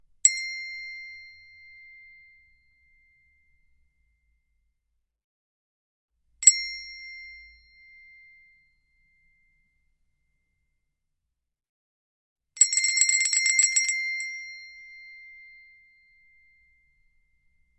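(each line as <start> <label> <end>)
0.2 A high-pitched small bell is struck quickly once. 0.7
0.7 An echo of a single high-pitched bell strike. 5.0
6.3 A high-pitched small bell is struck quickly once. 6.9
6.9 An echo of a single high-pitched bell strike. 11.1
12.6 A lot of small high-pitched bells ring repeatedly. 14.3
14.1 An echo follows multiple strikes of small high-pitched bells. 17.8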